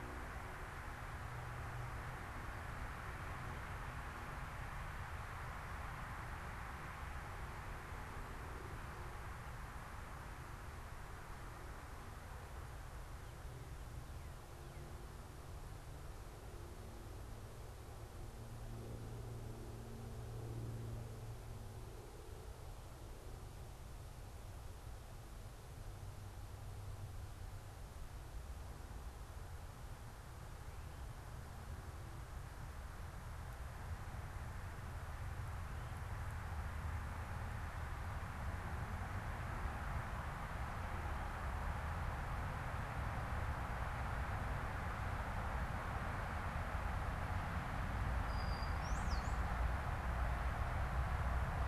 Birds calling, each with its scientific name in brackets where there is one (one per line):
Brown-headed Cowbird (Molothrus ater)